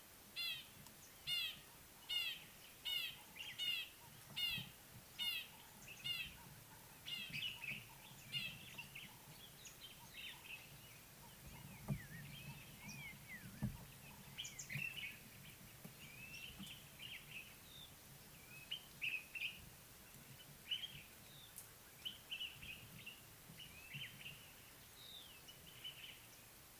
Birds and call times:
Red-fronted Barbet (Tricholaema diademata): 2.2s
Common Bulbul (Pycnonotus barbatus): 14.7s, 22.3s
Pale White-eye (Zosterops flavilateralis): 25.1s

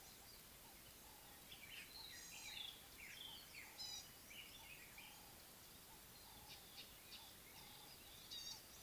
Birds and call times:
Gray-backed Camaroptera (Camaroptera brevicaudata): 2.4s
White-browed Robin-Chat (Cossypha heuglini): 2.7s
Northern Puffback (Dryoscopus gambensis): 6.9s

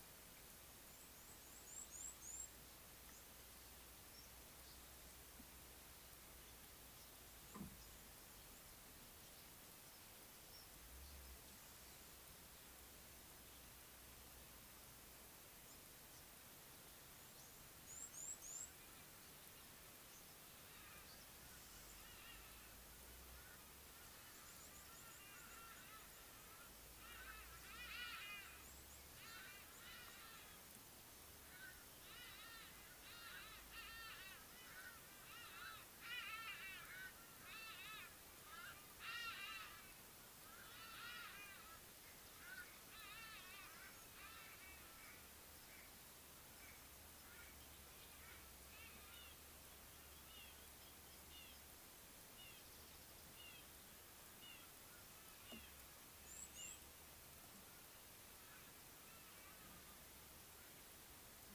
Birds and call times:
Red-cheeked Cordonbleu (Uraeginthus bengalus): 2.0s, 18.2s, 56.4s
Hadada Ibis (Bostrychia hagedash): 28.1s, 36.6s
White-bellied Go-away-bird (Corythaixoides leucogaster): 47.3s
Red-fronted Barbet (Tricholaema diademata): 52.3s

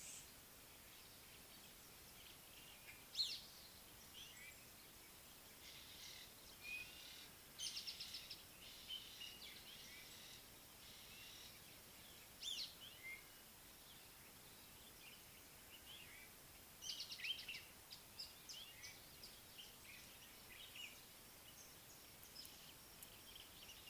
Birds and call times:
Speckled Mousebird (Colius striatus): 8.0s, 12.6s
Violet-backed Starling (Cinnyricinclus leucogaster): 13.2s

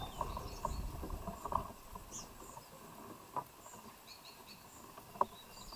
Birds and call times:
Abyssinian Thrush (Turdus abyssinicus): 4.2s

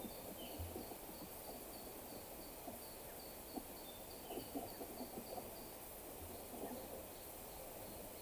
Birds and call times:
Waller's Starling (Onychognathus walleri): 3.8s

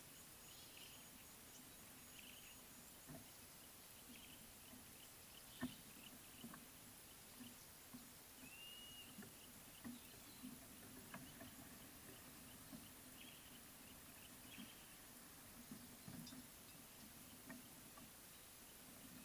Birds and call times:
Yellow-breasted Apalis (Apalis flavida): 6.0s
Blue-naped Mousebird (Urocolius macrourus): 8.7s

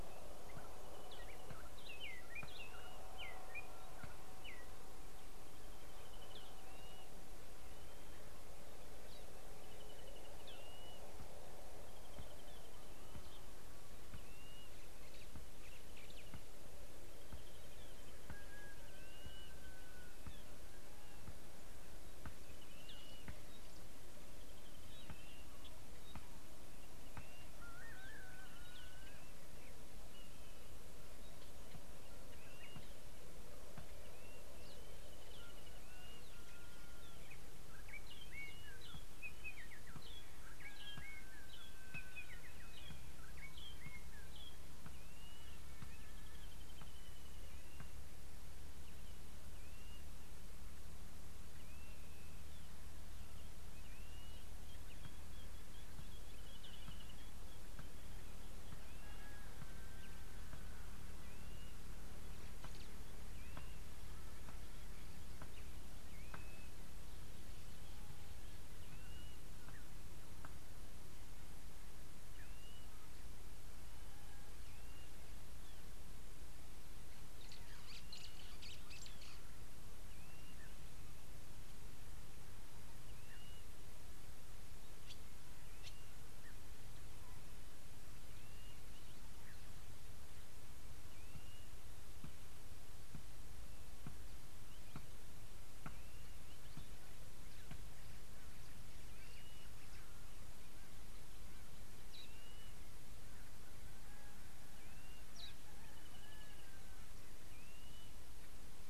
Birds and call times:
Spotted Morning-Thrush (Cichladusa guttata): 2.4s
Brubru (Nilaus afer): 6.1s, 10.1s, 12.4s, 24.9s, 56.7s, 106.3s
Blue-naped Mousebird (Urocolius macrourus): 10.8s, 19.2s, 34.3s, 49.8s, 66.4s, 72.6s, 83.5s, 91.5s, 107.9s
White-browed Sparrow-Weaver (Plocepasser mahali): 78.7s

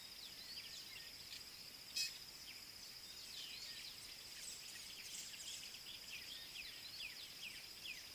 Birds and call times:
Fork-tailed Drongo (Dicrurus adsimilis): 2.0s

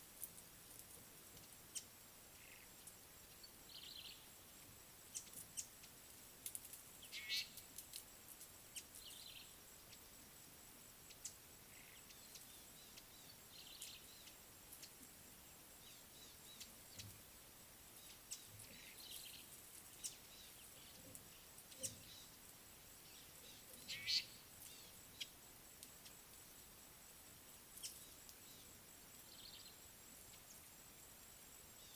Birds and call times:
Brown-tailed Chat (Oenanthe scotocerca): 3.9s, 9.3s, 13.7s, 19.2s, 29.5s
Fork-tailed Drongo (Dicrurus adsimilis): 7.3s, 24.1s
Eastern Violet-backed Sunbird (Anthreptes orientalis): 16.2s, 20.4s

